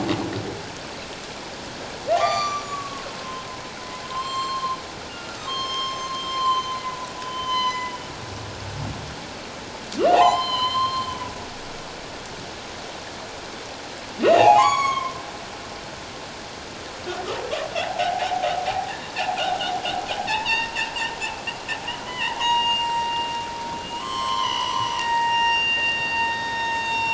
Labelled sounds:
2.1	3.5	humpback whale, 0.78 to 7.2 kHz
4.1	7.9	humpback whale, 0.88 to 7.5 kHz
10.1	11.1	humpback whale, 0.78 to 7.3 kHz
14.2	15.2	humpback whale, 0.78 to 7.9 kHz
17.8	18.5	humpback whale, 0.78 to 0.91 kHz
20.3	20.7	humpback whale, 0.81 to 3.9 kHz
22.0	23.1	humpback whale, 0.84 to 6.7 kHz
24.0	27.1	humpback whale, 0.81 to 7.8 kHz

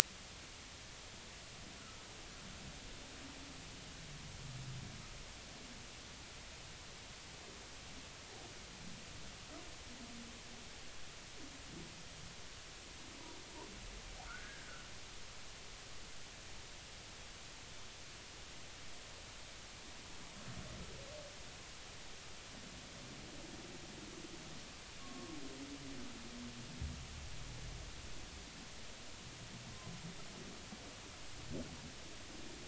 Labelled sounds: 14.3	14.8	humpback whale, 1.1 to 1.7 kHz
26.0	26.4	humpback whale, 0.99 to 1.2 kHz

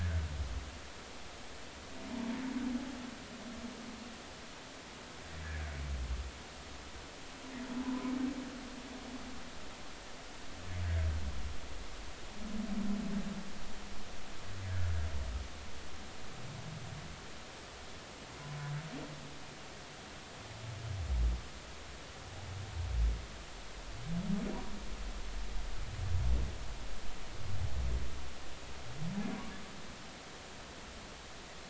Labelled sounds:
5.4	5.7	humpback whale, 1.6 to 1.8 kHz
14.6	14.9	humpback whale, 1.5 to 1.8 kHz

